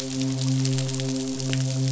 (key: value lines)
label: biophony, midshipman
recorder: SoundTrap 500